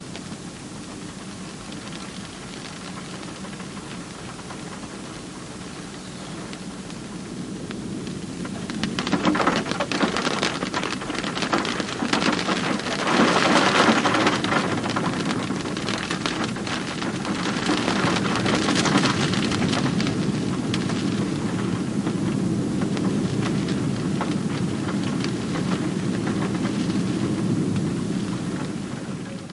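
Soft rain and wind hitting the ground. 0.0 - 8.7
Rain intensifies and hits a metal roof louder. 8.8 - 21.5
Soft rain and wind hitting the ground. 21.6 - 29.4

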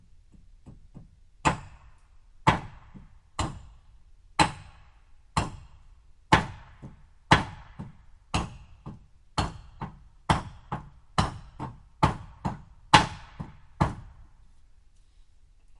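Something is hammering repeatedly, making a clanking noise that gradually speeds up. 0.1 - 15.8

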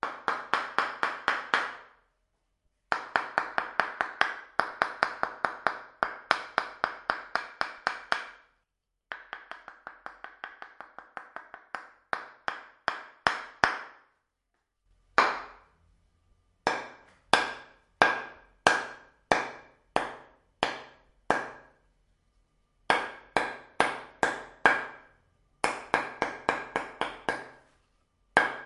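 Two wooden sticks are being hit together periodically indoors. 0.0 - 2.0
Two wooden sticks are being hit against each other indoors. 2.7 - 8.3
Two wooden sticks are being hit together periodically indoors, with the intensity increasing. 9.0 - 13.8
Two wooden sticks are being hit against each other indoors. 14.9 - 15.6
Two wooden sticks are being hit together periodically indoors. 16.4 - 21.6
Two wooden sticks are being hit against each other indoors. 22.8 - 24.9
Two wooden sticks are being hit together periodically indoors. 25.6 - 27.5
Two wooden sticks are being hit against each other indoors. 28.3 - 28.7

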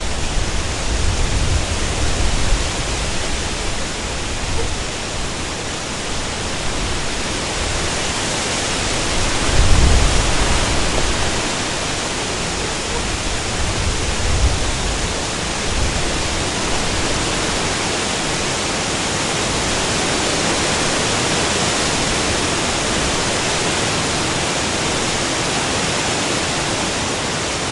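Leaves blowing in the wind. 0.0 - 27.7

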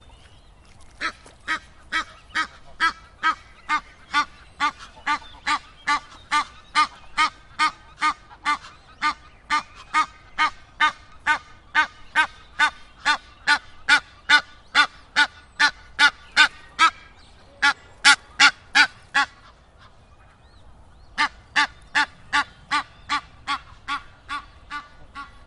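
Birds chirp quietly in a steady pattern. 0.0 - 25.5
A duck quacks repeatedly in a steady pattern. 1.0 - 17.0
A duck quacks repeatedly in a steady pattern. 17.6 - 19.3
A duck quacks repeatedly, with the sounds gradually fading. 21.1 - 25.3

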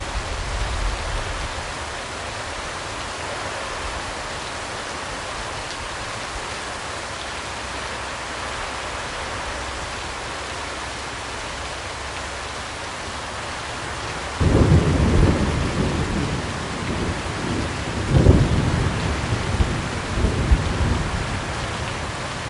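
Constant loud rain outdoors. 0.0 - 14.4
Two thunderclaps occur in the rain, with the second following the fading of the first and then fading away itself. 14.3 - 22.5

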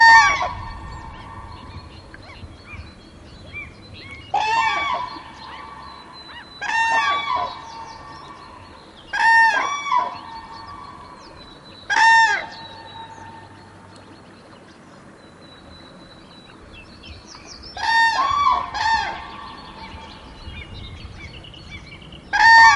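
A bird calls loudly, echoing into nature. 0.0 - 2.1
Birds chirping fading into the distance. 1.2 - 4.3
A bird calls loudly, echoing into nature. 4.3 - 5.6
Birds chirping fading into the distance. 5.3 - 6.6
A bird calls loudly, echoing into nature. 6.6 - 7.6
Birds chirping fading into the distance. 7.6 - 9.1
A bird calls loudly, echoing into nature. 9.1 - 10.6
Birds chirping fading into the distance. 10.3 - 11.9
A bird calls loudly, echoing into nature. 11.8 - 13.4
Birds chirping fading into the distance. 12.7 - 17.8
A bird calls loudly, echoing into nature. 17.7 - 19.4
Birds chirping fading into the distance. 19.1 - 22.4
A bird calls loudly, echoing into nature. 22.2 - 22.8

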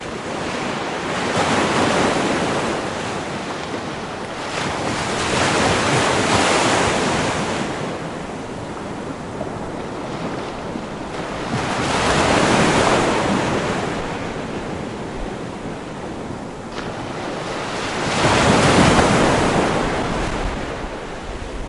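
Ocean waves crash ashore. 0.0 - 3.0
Ocean waves receding. 3.1 - 4.5
Ocean waves crash ashore. 4.5 - 8.0
Ocean waves receding. 8.0 - 11.1
Ocean waves crash ashore. 11.2 - 14.1
Ocean waves receding. 14.2 - 17.4
Ocean waves crash ashore. 17.6 - 20.7
Ocean waves receding. 20.8 - 21.7

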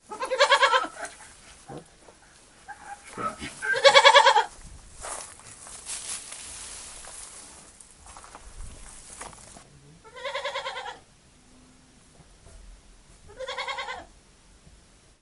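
A goat bleats loudly. 0.1 - 0.9
A squeaking noise is heard in the background. 0.9 - 1.1
Background muffled noise. 1.6 - 1.9
A squeaking noise is heard in the background. 2.7 - 3.5
A goat bleats loudly. 3.6 - 4.5
Footsteps on dry straw. 4.9 - 9.6
A goat bleats in the distance. 10.1 - 11.0
A goat bleats in the distance. 13.4 - 14.0

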